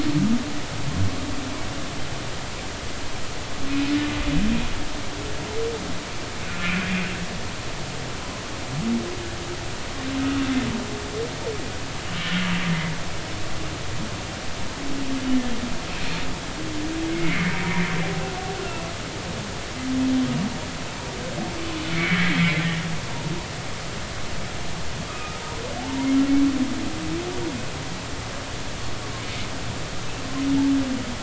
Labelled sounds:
6.5	6.8	humpback whale, 1.3 to 1.5 kHz
17.1	17.8	humpback whale, 2.0 to 2.4 kHz
21.9	22.8	humpback whale, 1.7 to 2.3 kHz
25.1	25.4	humpback whale, 1.1 to 2.6 kHz
25.8	26.1	humpback whale, 0.80 to 0.99 kHz

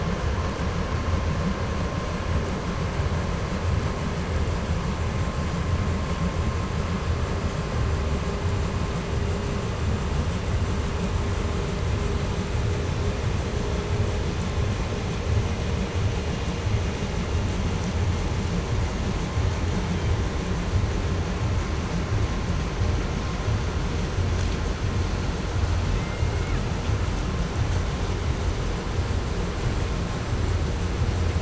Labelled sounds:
19.6	20.4	killer whale, 1.9 to 3.8 kHz
25.7	26.8	killer whale, Bigg's (transient), call T01, 0.90 to 3.7 kHz

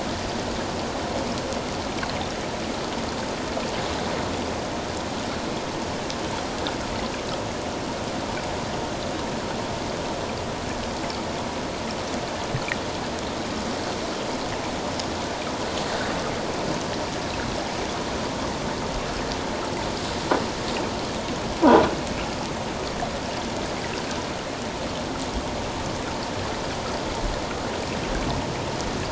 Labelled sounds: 21.6	21.9	croaking sound likely from a nearby submerged object, 1.4 to 1.6 kHz

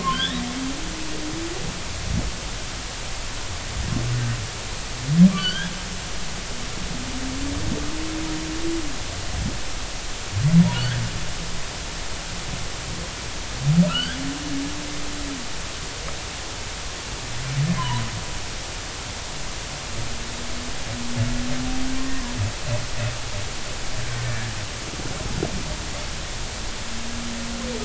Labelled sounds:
0.0	0.5	humpback whale, 0.99 to 3.9 kHz
5.4	5.7	humpback whale, 1.4 to 3.5 kHz
10.7	11.0	humpback whale, 1.4 to 1.9 kHz
13.9	14.2	humpback whale, 1.2 to 3.5 kHz
17.8	18.0	humpback whale, 0.86 to 1.1 kHz

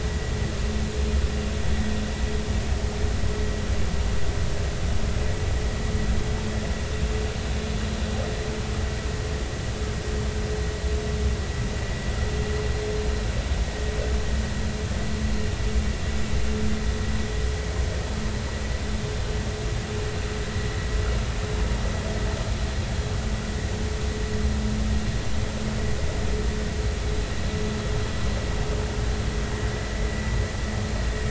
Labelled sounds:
30.0	30.2	vessel noise, 1.9 to 2.1 kHz

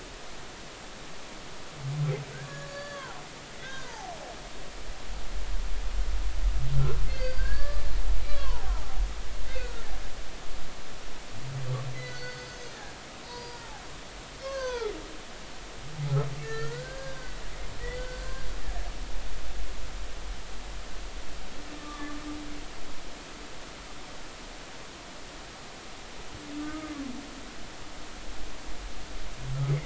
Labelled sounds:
2.4	4.1	humpback whale, 0.80 to 4.7 kHz
7.1	7.9	humpback whale, 1.1 to 4.9 kHz
8.2	9.0	humpback whale, 0.80 to 4.2 kHz
9.5	9.9	humpback whale, 1.3 to 2.2 kHz
11.9	12.8	humpback whale, 1.4 to 6.5 kHz
13.2	13.7	humpback whale, 0.90 to 4.9 kHz
14.4	14.9	humpback whale, 0.80 to 6.5 kHz
16.4	17.4	humpback whale, 1.3 to 4.9 kHz
17.9	18.5	humpback whale, 1.4 to 4.8 kHz
21.8	22.2	humpback whale, 1.1 to 1.3 kHz
26.6	26.9	humpback whale, 1.2 to 1.3 kHz

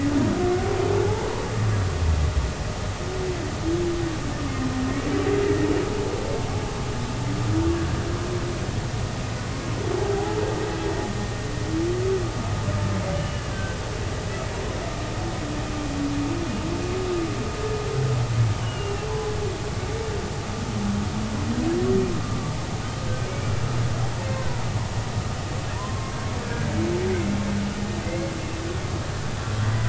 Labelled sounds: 13.1	13.8	humpback whale, 1.5 to 3.0 kHz
18.5	19.1	humpback whale, 2.7 to 3.2 kHz
22.2	22.5	humpback whale, 1.1 to 1.2 kHz
24.3	24.6	humpback whale, 0.93 to 2.4 kHz
25.8	26.7	humpback whale, 0.93 to 1.7 kHz
28.0	28.3	humpback whale, 2.0 to 2.2 kHz

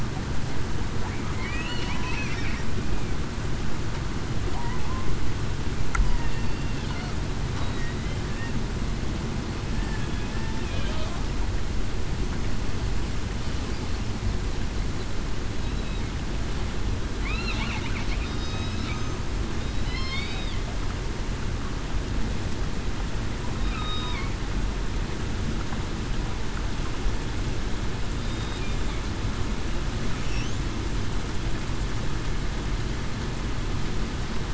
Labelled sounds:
1.6	2.0	killer whale, southern resident, 2.8 to 3.0 kHz
9.7	10.1	killer whale, southern resident, 1.6 to 1.8 kHz
18.3	18.8	killer whale, southern resident, 3.7 to 5.3 kHz
19.8	20.3	killer whale, southern resident, 3.9 to 4.5 kHz
23.7	24.1	killer whale, southern resident, 1.2 to 1.3 kHz
28.2	28.6	killer whale, southern resident, 3.6 to 3.8 kHz

